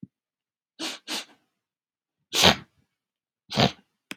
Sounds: Sniff